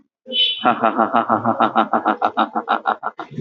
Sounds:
Laughter